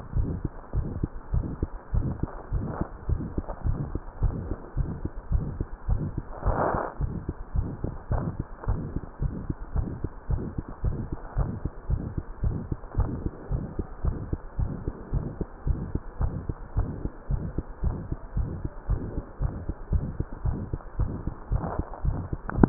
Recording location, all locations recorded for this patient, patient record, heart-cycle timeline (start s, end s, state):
mitral valve (MV)
aortic valve (AV)+pulmonary valve (PV)+tricuspid valve (TV)+mitral valve (MV)
#Age: Child
#Sex: Male
#Height: 108.0 cm
#Weight: 18.6 kg
#Pregnancy status: False
#Murmur: Present
#Murmur locations: aortic valve (AV)+mitral valve (MV)+pulmonary valve (PV)+tricuspid valve (TV)
#Most audible location: aortic valve (AV)
#Systolic murmur timing: Mid-systolic
#Systolic murmur shape: Diamond
#Systolic murmur grading: III/VI or higher
#Systolic murmur pitch: Medium
#Systolic murmur quality: Harsh
#Diastolic murmur timing: nan
#Diastolic murmur shape: nan
#Diastolic murmur grading: nan
#Diastolic murmur pitch: nan
#Diastolic murmur quality: nan
#Outcome: Abnormal
#Campaign: 2015 screening campaign
0.00	0.12	diastole
0.12	0.28	S1
0.28	0.42	systole
0.42	0.52	S2
0.52	0.72	diastole
0.72	0.88	S1
0.88	1.00	systole
1.00	1.10	S2
1.10	1.30	diastole
1.30	1.46	S1
1.46	1.60	systole
1.60	1.70	S2
1.70	1.92	diastole
1.92	2.08	S1
2.08	2.20	systole
2.20	2.30	S2
2.30	2.50	diastole
2.50	2.64	S1
2.64	2.78	systole
2.78	2.90	S2
2.90	3.10	diastole
3.10	3.22	S1
3.22	3.34	systole
3.34	3.46	S2
3.46	3.62	diastole
3.62	3.78	S1
3.78	3.92	systole
3.92	4.02	S2
4.02	4.20	diastole
4.20	4.34	S1
4.34	4.48	systole
4.48	4.58	S2
4.58	4.78	diastole
4.78	4.90	S1
4.90	5.02	systole
5.02	5.12	S2
5.12	5.30	diastole
5.30	5.46	S1
5.46	5.58	systole
5.58	5.68	S2
5.68	5.86	diastole
5.86	6.02	S1
6.02	6.16	systole
6.16	6.24	S2
6.24	6.44	diastole
6.44	6.58	S1
6.58	6.74	systole
6.74	6.84	S2
6.84	7.02	diastole
7.02	7.14	S1
7.14	7.26	systole
7.26	7.34	S2
7.34	7.52	diastole
7.52	7.66	S1
7.66	7.82	systole
7.82	7.92	S2
7.92	8.10	diastole
8.10	8.24	S1
8.24	8.38	systole
8.38	8.46	S2
8.46	8.66	diastole
8.66	8.82	S1
8.82	8.94	systole
8.94	9.04	S2
9.04	9.22	diastole
9.22	9.32	S1
9.32	9.46	systole
9.46	9.56	S2
9.56	9.72	diastole
9.72	9.86	S1
9.86	10.02	systole
10.02	10.10	S2
10.10	10.28	diastole
10.28	10.40	S1
10.40	10.56	systole
10.56	10.66	S2
10.66	10.82	diastole
10.82	10.98	S1
10.98	11.10	systole
11.10	11.20	S2
11.20	11.36	diastole
11.36	11.50	S1
11.50	11.64	systole
11.64	11.70	S2
11.70	11.88	diastole
11.88	12.00	S1
12.00	12.16	systole
12.16	12.24	S2
12.24	12.42	diastole
12.42	12.58	S1
12.58	12.70	systole
12.70	12.80	S2
12.80	12.98	diastole
12.98	13.08	S1
13.08	13.24	systole
13.24	13.34	S2
13.34	13.52	diastole
13.52	13.66	S1
13.66	13.78	systole
13.78	13.86	S2
13.86	14.02	diastole
14.02	14.14	S1
14.14	14.30	systole
14.30	14.40	S2
14.40	14.56	diastole
14.56	14.70	S1
14.70	14.86	systole
14.86	14.96	S2
14.96	15.14	diastole
15.14	15.24	S1
15.24	15.36	systole
15.36	15.46	S2
15.46	15.64	diastole
15.64	15.82	S1
15.82	15.94	systole
15.94	16.02	S2
16.02	16.20	diastole
16.20	16.36	S1
16.36	16.48	systole
16.48	16.56	S2
16.56	16.76	diastole
16.76	16.88	S1
16.88	17.02	systole
17.02	17.12	S2
17.12	17.30	diastole
17.30	17.42	S1
17.42	17.56	systole
17.56	17.68	S2
17.68	17.84	diastole
17.84	17.98	S1
17.98	18.10	systole
18.10	18.18	S2
18.18	18.34	diastole
18.34	18.48	S1
18.48	18.62	systole
18.62	18.72	S2
18.72	18.90	diastole
18.90	19.00	S1
19.00	19.16	systole
19.16	19.24	S2
19.24	19.42	diastole
19.42	19.52	S1
19.52	19.66	systole
19.66	19.76	S2
19.76	19.90	diastole
19.90	20.04	S1
20.04	20.18	systole
20.18	20.28	S2
20.28	20.46	diastole
20.46	20.60	S1
20.60	20.72	systole
20.72	20.80	S2
20.80	20.98	diastole
20.98	21.14	S1
21.14	21.26	systole
21.26	21.36	S2
21.36	21.52	diastole
21.52	21.62	S1
21.62	21.78	systole
21.78	21.88	S2
21.88	22.04	diastole
22.04	22.18	S1
22.18	22.30	systole
22.30	22.40	S2
22.40	22.56	diastole
22.56	22.69	S1